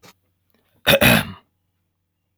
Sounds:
Throat clearing